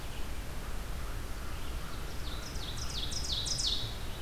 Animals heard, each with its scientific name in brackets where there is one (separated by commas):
Ovenbird (Seiurus aurocapilla), American Crow (Corvus brachyrhynchos)